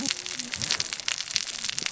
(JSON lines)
{"label": "biophony, cascading saw", "recorder": "SoundTrap 600 or HydroMoth"}